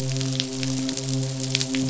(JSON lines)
{"label": "biophony, midshipman", "recorder": "SoundTrap 500"}